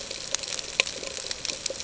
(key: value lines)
label: ambient
recorder: HydroMoth